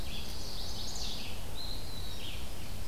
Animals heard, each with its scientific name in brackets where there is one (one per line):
Chestnut-sided Warbler (Setophaga pensylvanica)
Red-eyed Vireo (Vireo olivaceus)
Pine Warbler (Setophaga pinus)